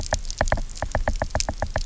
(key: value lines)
label: biophony, knock
recorder: SoundTrap 300